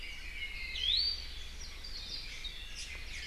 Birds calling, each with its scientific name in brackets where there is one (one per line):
Apapane (Himatione sanguinea)
Iiwi (Drepanis coccinea)